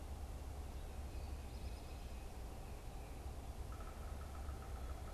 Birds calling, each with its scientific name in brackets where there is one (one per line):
Yellow-bellied Sapsucker (Sphyrapicus varius)